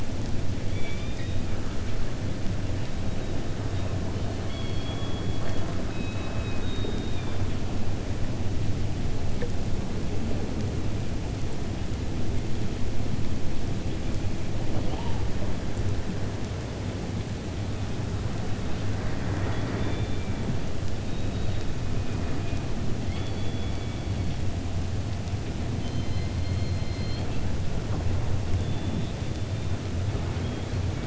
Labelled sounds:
0.6	1.4	killer whale, 1.7 to 4.4 kHz
5.9	7.4	killer whale, 1.1 to 3.9 kHz

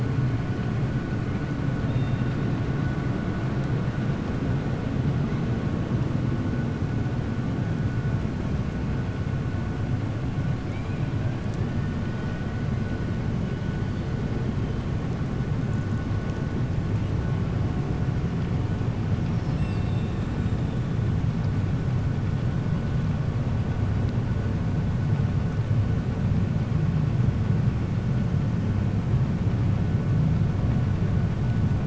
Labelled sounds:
10.6	11.1	killer whale, 2.2 to 3.2 kHz
19.5	20.6	killer whale, 6.5 to 7.9 kHz

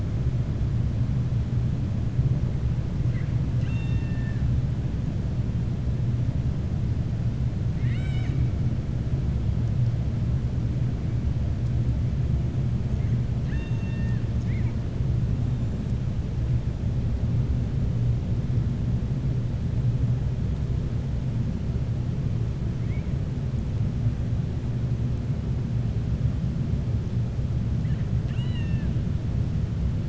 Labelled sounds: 3.5	4.4	killer whale, 0.92 to 7.3 kHz
7.7	8.4	killer whale, 0.80 to 7.7 kHz
13.3	14.2	killer whale, 0.91 to 4.6 kHz
28.2	28.9	killer whale, 0.96 to 7.8 kHz

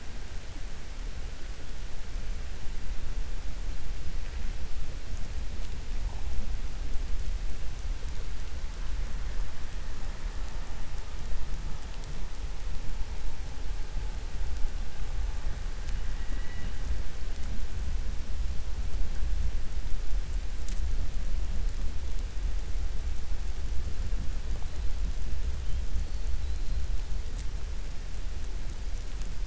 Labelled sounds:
16.1	16.8	killer whale, 1.4 to 3.9 kHz

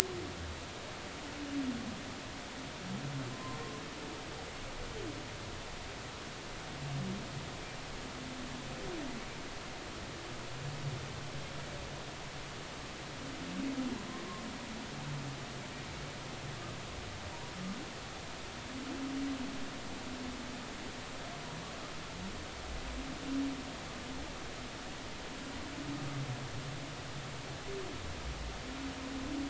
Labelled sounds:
3.3	3.6	humpback whale, 0.99 to 1.1 kHz

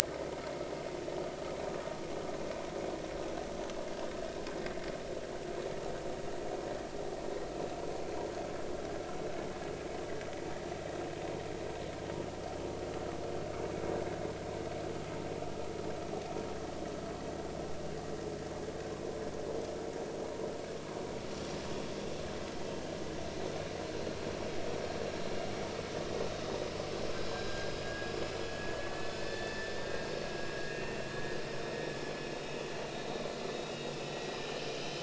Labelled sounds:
27.3	28.1	vessel noise, 1.5 to 1.7 kHz
28.5	31.0	vessel noise, 1.6 to 3.6 kHz
32.9	35.0	vessel noise, 2.8 to 3.9 kHz

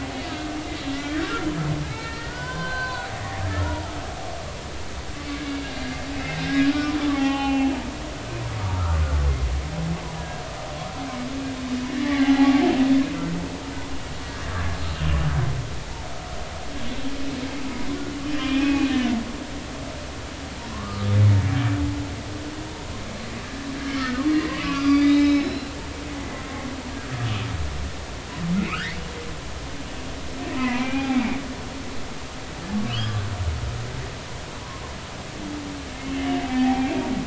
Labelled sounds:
0.9	1.3	humpback whale, 1.4 to 2.1 kHz
1.9	3.1	humpback whale, 0.93 to 4.7 kHz
3.5	4.0	humpback whale, 0.83 to 1.5 kHz
6.1	7.7	humpback whale, 0.80 to 3.3 kHz
8.6	9.0	humpback whale, 1.1 to 1.5 kHz
10.1	10.4	humpback whale, 1.6 to 1.8 kHz
12.0	12.5	humpback whale, 0.80 to 3.1 kHz
18.2	18.9	humpback whale, 2.3 to 3.1 kHz
20.7	21.1	humpback whale, 0.96 to 1.3 kHz
24.0	25.7	humpback whale, 0.99 to 5.5 kHz
28.6	29.0	humpback whale, 1.1 to 2.9 kHz
30.5	31.2	humpback whale, 0.80 to 2.5 kHz
32.8	33.2	humpback whale, 2.5 to 3.5 kHz
36.0	37.1	humpback whale, 0.80 to 3.0 kHz

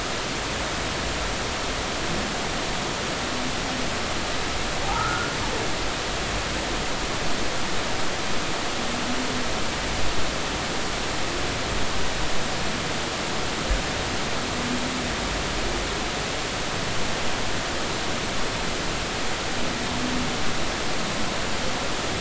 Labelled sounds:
4.9	5.3	humpback whale, 1.2 to 1.5 kHz

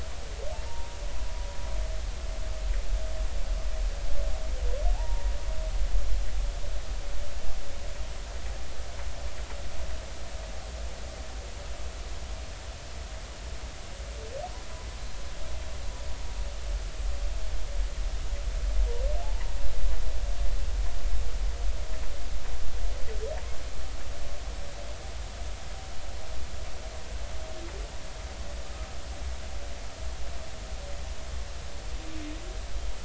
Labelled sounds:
0.7	1.0	humpback whale, 0.90 to 0.99 kHz
4.9	5.3	humpback whale, 0.80 to 0.99 kHz
19.2	19.5	humpback whale, 0.80 to 1.1 kHz

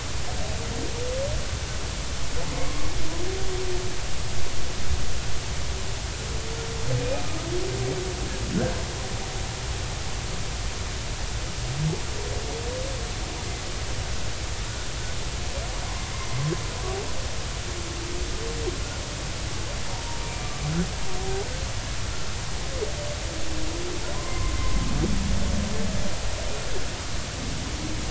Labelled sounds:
2.6	2.9	humpback whale, 1.0 to 1.2 kHz
16.1	16.4	humpback whale, 2.0 to 2.1 kHz
19.9	20.5	humpback whale, 0.80 to 2.4 kHz
24.1	24.6	humpback whale, 0.93 to 1.1 kHz

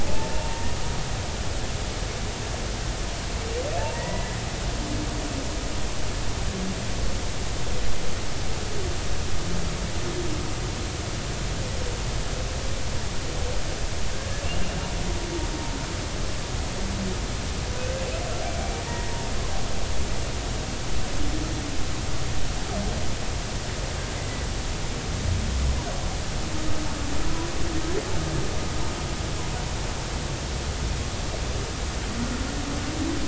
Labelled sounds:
0.0	0.7	humpback whale, 0.80 to 0.99 kHz
3.9	4.4	humpback whale, 1.8 to 2.0 kHz
18.5	19.2	humpback whale, 1.8 to 2.4 kHz

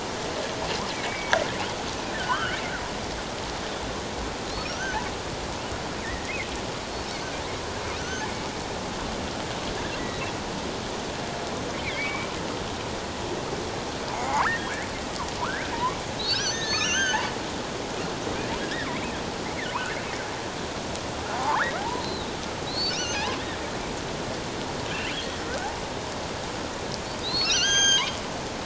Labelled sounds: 0.9	2.6	killer whale, offshore, 0.94 to 3.3 kHz
4.7	5.0	killer whale, offshore, 1.3 to 1.6 kHz
6.0	6.3	killer whale, offshore, 1.8 to 2.0 kHz
8.0	8.3	killer whale, offshore, 1.4 to 6.4 kHz
11.7	12.3	killer whale, offshore, 2.0 to 2.5 kHz
14.1	17.2	killer whale, offshore, 0.78 to 6.5 kHz
21.3	22.3	killer whale, offshore, 0.78 to 4.2 kHz
22.7	23.4	killer whale, offshore, 0.78 to 6.4 kHz
25.1	25.7	killer whale, offshore, 1.3 to 3.4 kHz
27.2	28.1	killer whale, offshore, 1.4 to 6.5 kHz

